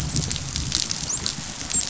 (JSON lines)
{"label": "biophony, dolphin", "recorder": "SoundTrap 500"}